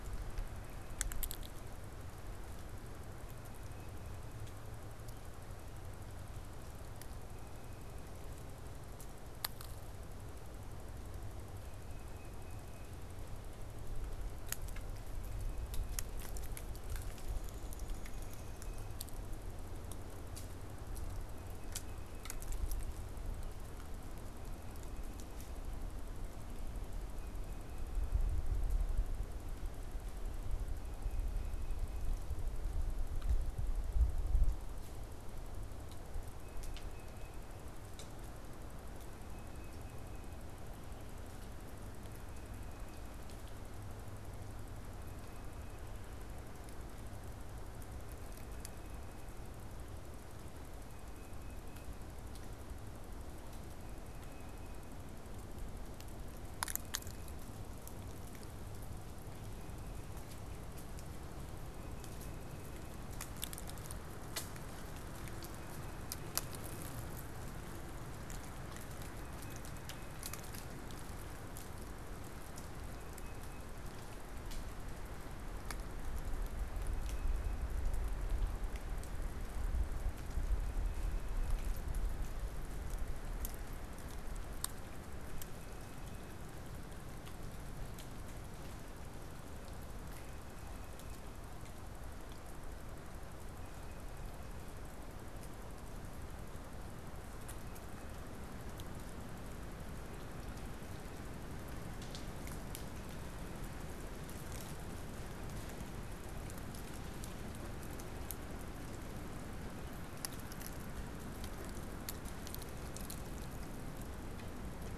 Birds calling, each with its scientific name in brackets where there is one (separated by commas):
Tufted Titmouse (Baeolophus bicolor), Downy Woodpecker (Dryobates pubescens)